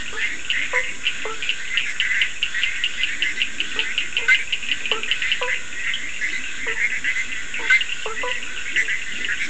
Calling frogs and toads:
Leptodactylus latrans (Leptodactylidae), Boana faber (Hylidae), Boana bischoffi (Hylidae), Scinax perereca (Hylidae), Sphaenorhynchus surdus (Hylidae)
3:30am

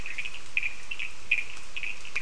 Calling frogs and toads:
Sphaenorhynchus surdus (Hylidae)
5:30am

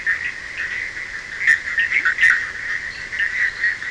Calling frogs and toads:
Boana bischoffi (Hylidae), Sphaenorhynchus surdus (Hylidae), Leptodactylus latrans (Leptodactylidae), Boana leptolineata (Hylidae)
12:30am

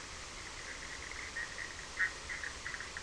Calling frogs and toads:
Boana bischoffi (Hylidae)
9pm

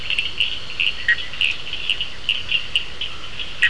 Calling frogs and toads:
Elachistocleis bicolor (Microhylidae), Sphaenorhynchus surdus (Hylidae), Boana bischoffi (Hylidae), Scinax perereca (Hylidae)
~9pm

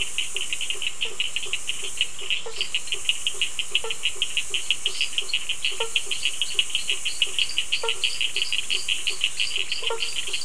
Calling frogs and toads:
Boana faber (Hylidae), Sphaenorhynchus surdus (Hylidae), Dendropsophus minutus (Hylidae)
7pm

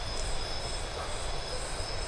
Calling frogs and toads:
none
4am

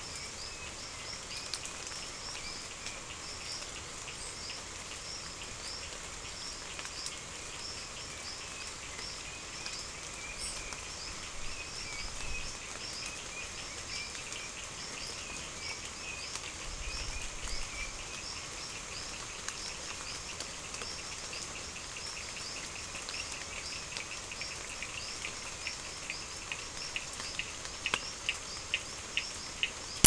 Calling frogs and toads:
Sphaenorhynchus surdus (Hylidae)
6pm

